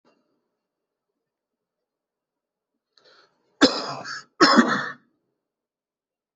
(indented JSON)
{
  "expert_labels": [
    {
      "quality": "good",
      "cough_type": "dry",
      "dyspnea": false,
      "wheezing": false,
      "stridor": false,
      "choking": false,
      "congestion": false,
      "nothing": true,
      "diagnosis": "obstructive lung disease",
      "severity": "mild"
    }
  ],
  "age": 40,
  "gender": "male",
  "respiratory_condition": false,
  "fever_muscle_pain": false,
  "status": "COVID-19"
}